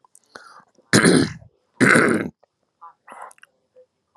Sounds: Throat clearing